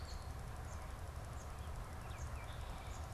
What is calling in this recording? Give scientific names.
Icterus galbula